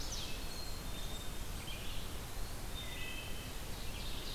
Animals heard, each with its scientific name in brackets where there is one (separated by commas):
Blackburnian Warbler (Setophaga fusca), Eastern Wood-Pewee (Contopus virens), Black-capped Chickadee (Poecile atricapillus), Ovenbird (Seiurus aurocapilla), Wood Thrush (Hylocichla mustelina), Chestnut-sided Warbler (Setophaga pensylvanica), Red-eyed Vireo (Vireo olivaceus)